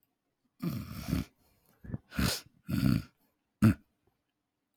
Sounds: Throat clearing